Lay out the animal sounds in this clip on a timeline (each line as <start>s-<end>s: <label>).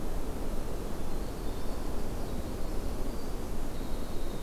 0.9s-4.4s: Winter Wren (Troglodytes hiemalis)